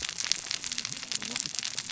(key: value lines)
label: biophony, cascading saw
recorder: SoundTrap 600 or HydroMoth